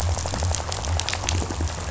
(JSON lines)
{"label": "biophony", "recorder": "SoundTrap 500"}